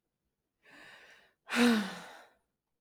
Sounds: Sigh